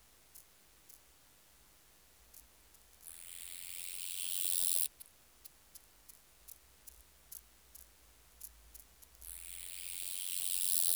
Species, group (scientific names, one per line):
Stenobothrus nigromaculatus
Orthoptera